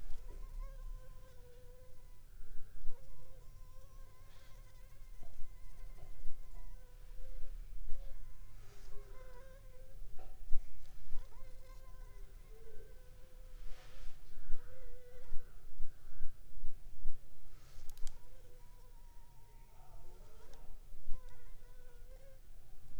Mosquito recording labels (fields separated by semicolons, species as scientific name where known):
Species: Anopheles funestus s.s.; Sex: female; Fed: unfed; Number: one; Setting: cup